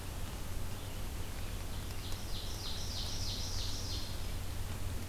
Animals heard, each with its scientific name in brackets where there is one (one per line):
American Robin (Turdus migratorius)
Ovenbird (Seiurus aurocapilla)